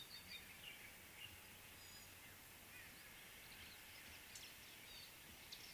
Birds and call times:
Gray-backed Camaroptera (Camaroptera brevicaudata): 0:02.0

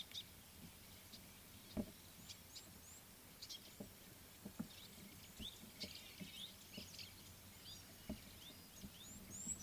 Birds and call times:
Red-billed Firefinch (Lagonosticta senegala): 0:02.3
White-browed Sparrow-Weaver (Plocepasser mahali): 0:06.9

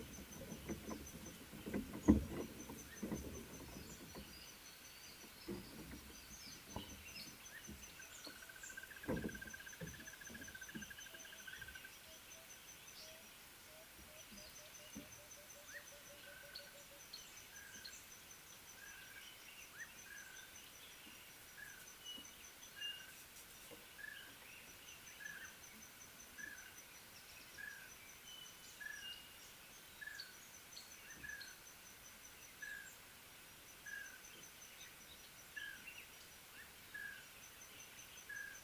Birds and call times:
Little Bee-eater (Merops pusillus): 0:07.2
Red-fronted Tinkerbird (Pogoniulus pusillus): 0:09.9, 0:24.1, 0:37.1
Chinspot Batis (Batis molitor): 0:22.1, 0:28.3

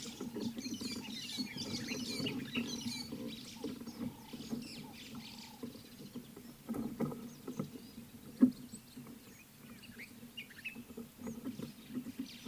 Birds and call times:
White-headed Buffalo-Weaver (Dinemellia dinemelli): 0:01.7
Common Bulbul (Pycnonotus barbatus): 0:10.3

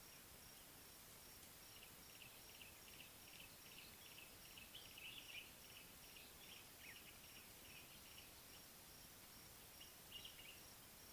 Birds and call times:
Yellow-breasted Apalis (Apalis flavida): 0:04.4
Common Bulbul (Pycnonotus barbatus): 0:05.0, 0:10.1

